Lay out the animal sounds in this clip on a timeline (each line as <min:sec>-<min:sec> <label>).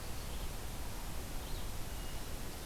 0:00.0-0:02.7 Red-eyed Vireo (Vireo olivaceus)